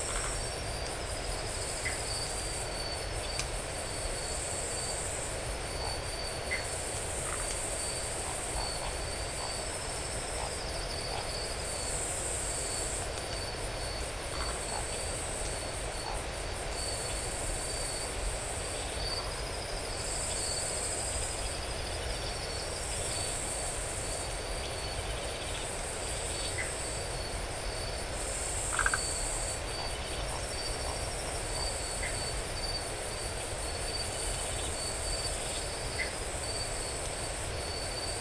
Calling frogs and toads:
Phyllomedusa distincta, Dendropsophus elegans
2am

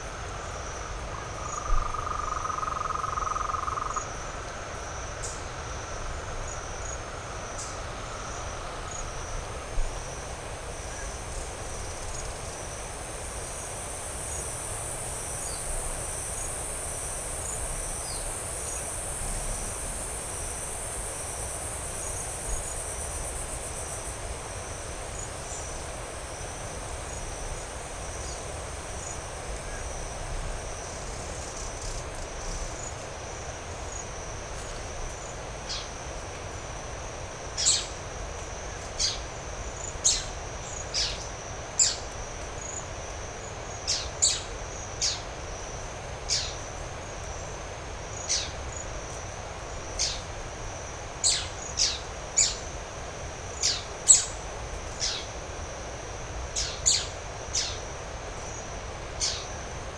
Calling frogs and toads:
Rhinella ornata
6pm

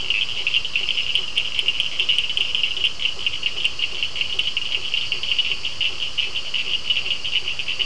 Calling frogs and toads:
Boana faber, Elachistocleis bicolor, Sphaenorhynchus surdus
7:30pm

